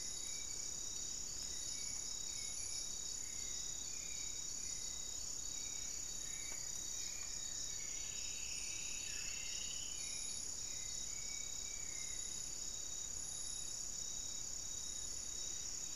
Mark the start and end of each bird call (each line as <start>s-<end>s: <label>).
0.0s-0.8s: Spot-winged Antshrike (Pygiptila stellaris)
0.0s-12.4s: Hauxwell's Thrush (Turdus hauxwelli)
6.1s-8.3s: Amazonian Barred-Woodcreeper (Dendrocolaptes certhia)
7.3s-10.2s: Striped Woodcreeper (Xiphorhynchus obsoletus)
8.9s-9.5s: Buff-throated Woodcreeper (Xiphorhynchus guttatus)
11.4s-14.9s: Undulated Tinamou (Crypturellus undulatus)